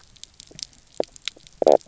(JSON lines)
{"label": "biophony, knock croak", "recorder": "SoundTrap 300"}